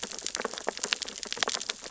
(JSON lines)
{"label": "biophony, sea urchins (Echinidae)", "recorder": "SoundTrap 600 or HydroMoth"}